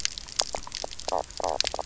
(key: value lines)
label: biophony, knock croak
recorder: SoundTrap 300